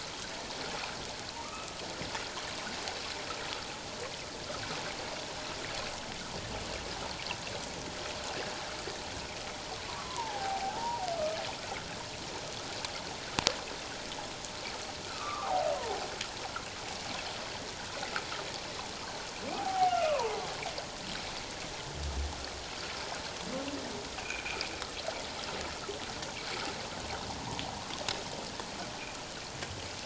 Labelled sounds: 1.4	1.7	humpback whale, 1.1 to 1.3 kHz
9.9	11.1	humpback whale, 0.78 to 1.4 kHz
15.0	16.0	humpback whale, 0.78 to 1.6 kHz
19.5	20.4	humpback whale, 0.78 to 2.9 kHz
24.2	24.4	humpback whale, 2.2 to 2.9 kHz

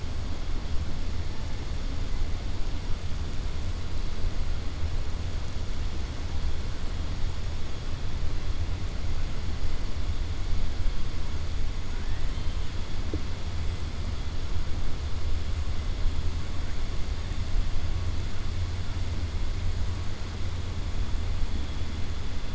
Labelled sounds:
11.9	12.6	killer whale, southern resident, 0.97 to 3.2 kHz

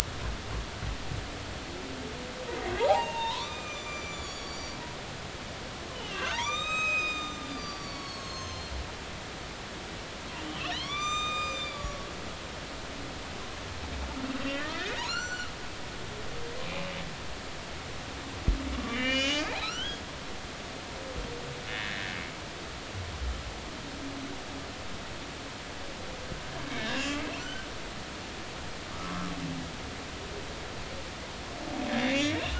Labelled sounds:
2.8	4.8	humpback whale, 0.80 to 7.2 kHz
5.9	8.7	humpback whale, 0.83 to 7.6 kHz
10.4	12.0	humpback whale, 0.93 to 7.4 kHz
14.4	15.5	humpback whale, 1.1 to 7.4 kHz
16.0	16.5	humpback whale, 3.9 to 4.5 kHz
18.9	20.0	humpback whale, 1.2 to 7.2 kHz
21.7	22.0	humpback whale, 1.6 to 1.9 kHz
26.7	27.7	humpback whale, 1.4 to 5.5 kHz
28.9	29.3	humpback whale, 1.0 to 1.4 kHz
32.0	32.4	humpback whale, 2.0 to 2.7 kHz

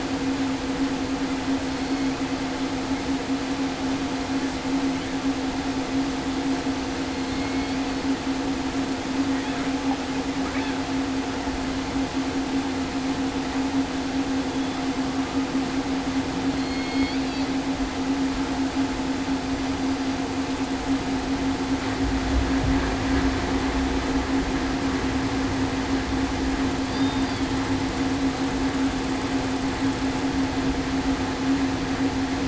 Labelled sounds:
1.7	2.0	killer whale, southern resident, 4.3 to 4.4 kHz
7.3	7.7	killer whale, southern resident, 2.1 to 2.2 kHz
16.5	17.2	killer whale, southern resident, 2.1 to 4.8 kHz
26.9	27.3	killer whale, southern resident, 3.5 to 3.7 kHz

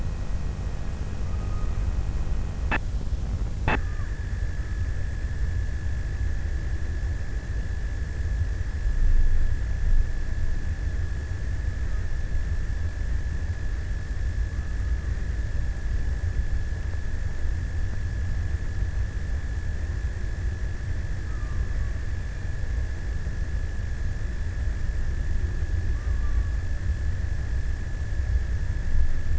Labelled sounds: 1.0	2.5	killer whale, offshore, 0.76 to 1.5 kHz
11.5	12.8	killer whale, offshore, 0.82 to 1.6 kHz
13.9	15.9	killer whale, offshore, 0.93 to 1.5 kHz
20.5	23.5	killer whale, offshore, 0.73 to 1.6 kHz
25.0	27.6	killer whale, offshore, 0.70 to 1.4 kHz

